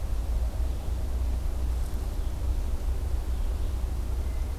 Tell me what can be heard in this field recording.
Red-eyed Vireo